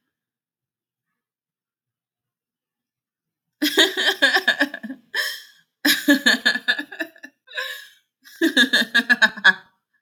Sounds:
Laughter